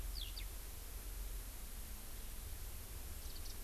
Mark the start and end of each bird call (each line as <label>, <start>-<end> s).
Eurasian Skylark (Alauda arvensis), 0.1-0.5 s
Eurasian Skylark (Alauda arvensis), 3.2-3.6 s